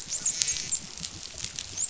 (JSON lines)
{"label": "biophony, dolphin", "recorder": "SoundTrap 500"}